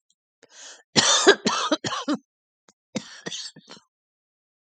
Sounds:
Cough